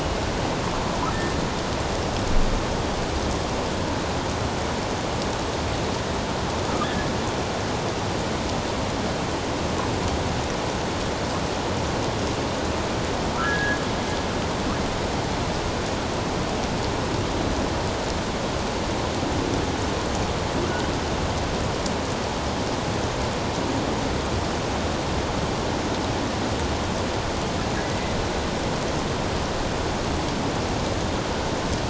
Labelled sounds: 6.8	7.1	humpback whale, 1.6 to 1.8 kHz
13.3	13.8	humpback whale, 1.2 to 1.8 kHz

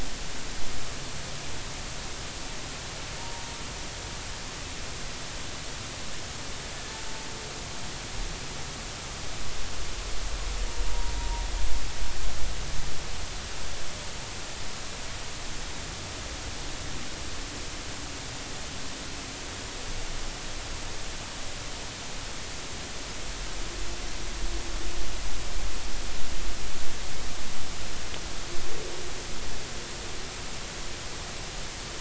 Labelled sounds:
3.2	3.4	humpback whale, 0.86 to 0.99 kHz
11.2	11.4	humpback whale, 0.90 to 0.99 kHz

